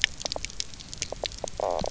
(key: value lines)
label: biophony, knock croak
recorder: SoundTrap 300